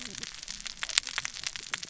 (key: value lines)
label: biophony, cascading saw
recorder: SoundTrap 600 or HydroMoth